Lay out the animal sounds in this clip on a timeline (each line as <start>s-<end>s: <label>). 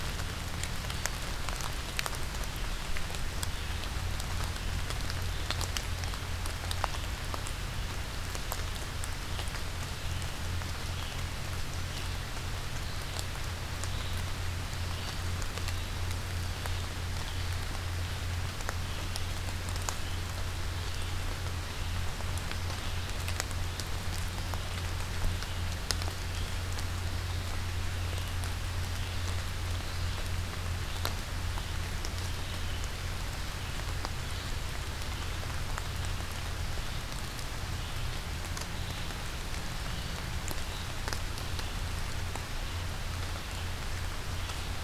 0.0s-17.7s: Red-eyed Vireo (Vireo olivaceus)
19.9s-44.8s: Red-eyed Vireo (Vireo olivaceus)